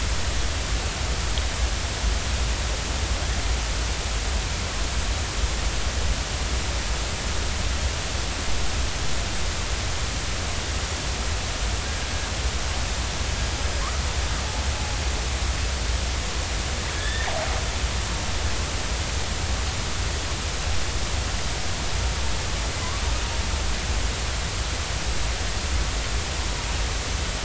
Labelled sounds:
16.9	17.3	killer whale, northern resident, 1.6 to 3.6 kHz
22.8	23.1	killer whale, northern resident, 0.96 to 1.2 kHz

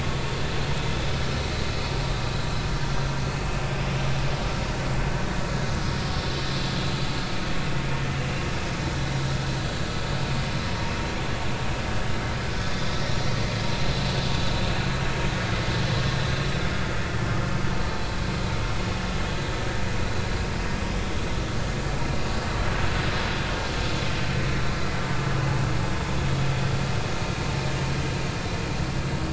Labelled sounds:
6.3	6.6	vessel noise, 4.0 to 4.1 kHz

